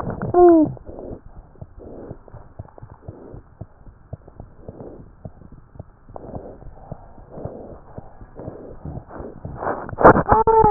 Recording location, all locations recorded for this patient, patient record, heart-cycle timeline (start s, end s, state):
tricuspid valve (TV)
aortic valve (AV)+pulmonary valve (PV)+tricuspid valve (TV)+mitral valve (MV)
#Age: Infant
#Sex: Female
#Height: 75.0 cm
#Weight: 9.5 kg
#Pregnancy status: False
#Murmur: Absent
#Murmur locations: nan
#Most audible location: nan
#Systolic murmur timing: nan
#Systolic murmur shape: nan
#Systolic murmur grading: nan
#Systolic murmur pitch: nan
#Systolic murmur quality: nan
#Diastolic murmur timing: nan
#Diastolic murmur shape: nan
#Diastolic murmur grading: nan
#Diastolic murmur pitch: nan
#Diastolic murmur quality: nan
#Outcome: Normal
#Campaign: 2015 screening campaign
0.00	2.32	unannotated
2.32	2.40	S1
2.40	2.58	systole
2.58	2.68	S2
2.68	2.80	diastole
2.80	2.90	S1
2.90	3.06	systole
3.06	3.16	S2
3.16	3.32	diastole
3.32	3.42	S1
3.42	3.58	systole
3.58	3.66	S2
3.66	3.82	diastole
3.82	3.94	S1
3.94	4.12	systole
4.12	4.22	S2
4.22	4.40	diastole
4.40	4.50	S1
4.50	4.66	systole
4.66	4.76	S2
4.76	4.97	diastole
4.97	5.05	S1
5.05	5.22	systole
5.22	5.32	S2
5.32	5.50	diastole
5.50	5.60	S1
5.60	5.76	systole
5.76	5.86	S2
5.86	6.02	diastole
6.02	6.10	S1
6.10	10.70	unannotated